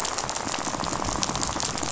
{"label": "biophony, rattle", "recorder": "SoundTrap 500"}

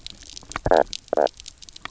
{"label": "biophony, knock croak", "recorder": "SoundTrap 300"}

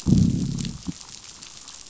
{"label": "anthrophony, boat engine", "recorder": "SoundTrap 500"}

